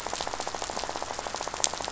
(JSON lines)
{"label": "biophony, rattle", "recorder": "SoundTrap 500"}